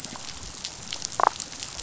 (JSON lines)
{"label": "biophony, damselfish", "recorder": "SoundTrap 500"}